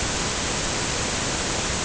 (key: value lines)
label: ambient
recorder: HydroMoth